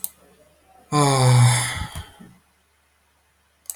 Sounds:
Sigh